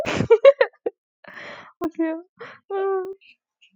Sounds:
Laughter